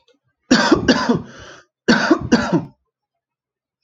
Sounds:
Cough